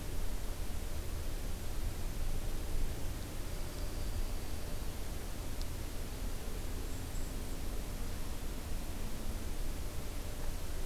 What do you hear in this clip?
Dark-eyed Junco, Black-and-white Warbler